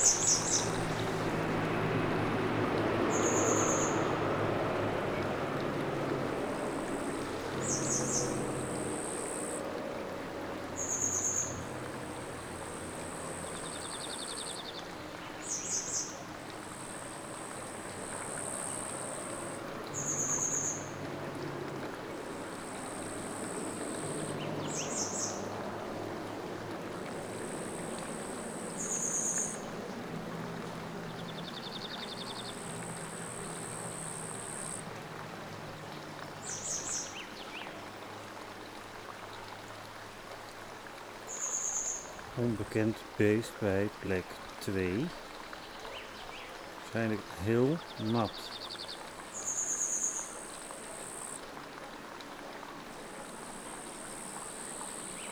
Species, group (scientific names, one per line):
Tettigonia caudata
Orthoptera